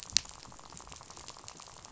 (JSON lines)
{"label": "biophony, rattle", "recorder": "SoundTrap 500"}